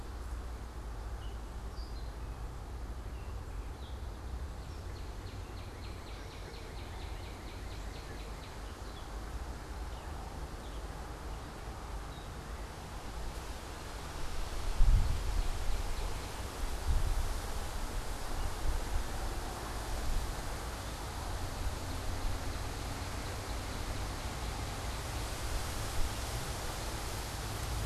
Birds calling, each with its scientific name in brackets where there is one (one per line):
Northern Cardinal (Cardinalis cardinalis)
Gray Catbird (Dumetella carolinensis)